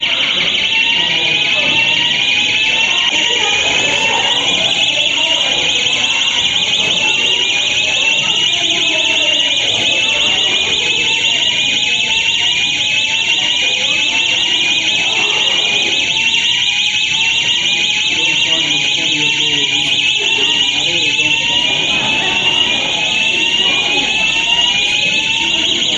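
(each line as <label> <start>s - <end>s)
Emergency alarms ring loudly and rhythmically indoors. 0.0s - 26.0s
Multiple people are talking muffled in the background indoors. 0.0s - 26.0s
A man speaks loudly and muffled in the distance. 17.8s - 23.8s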